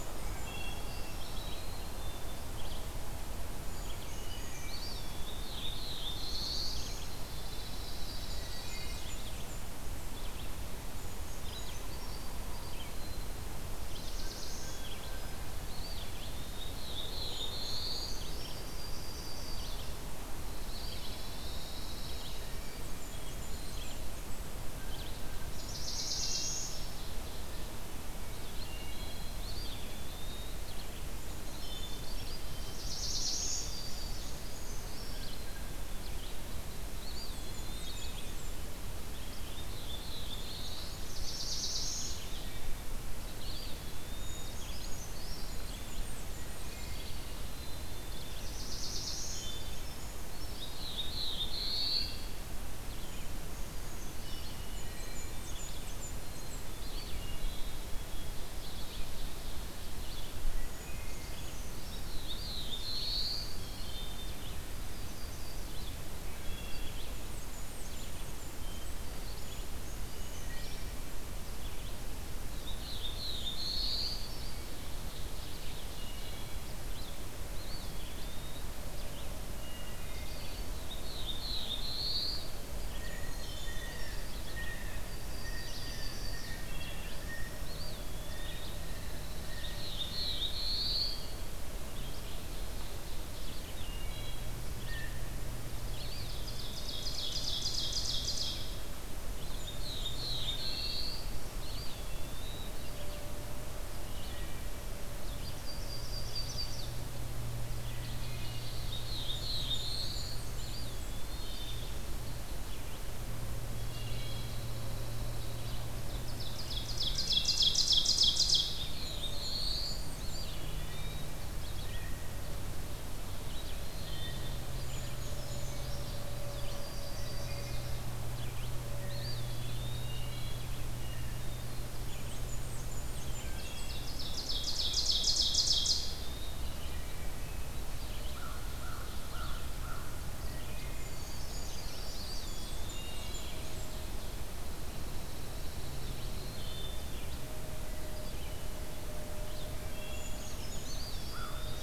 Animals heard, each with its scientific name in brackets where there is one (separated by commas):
American Crow (Corvus brachyrhynchos), Wood Thrush (Hylocichla mustelina), Yellow-rumped Warbler (Setophaga coronata), Eastern Wood-Pewee (Contopus virens), Black-capped Chickadee (Poecile atricapillus), Blue Jay (Cyanocitta cristata), Brown Creeper (Certhia americana), Black-throated Blue Warbler (Setophaga caerulescens), Blackburnian Warbler (Setophaga fusca), Pine Warbler (Setophaga pinus), Red-eyed Vireo (Vireo olivaceus), Ovenbird (Seiurus aurocapilla)